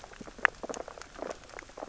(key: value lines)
label: biophony, sea urchins (Echinidae)
recorder: SoundTrap 600 or HydroMoth